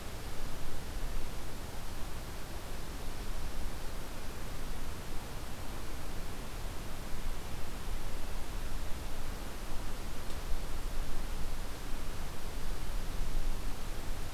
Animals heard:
forest ambience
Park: Hubbard Brook Experimental Forest